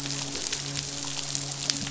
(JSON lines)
{"label": "biophony, midshipman", "recorder": "SoundTrap 500"}
{"label": "biophony", "recorder": "SoundTrap 500"}